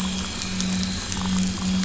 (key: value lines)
label: anthrophony, boat engine
recorder: SoundTrap 500

label: biophony
recorder: SoundTrap 500